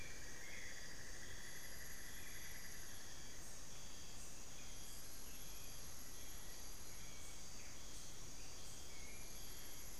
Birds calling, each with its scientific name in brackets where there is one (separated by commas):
Hauxwell's Thrush (Turdus hauxwelli), unidentified bird, Cinnamon-throated Woodcreeper (Dendrexetastes rufigula)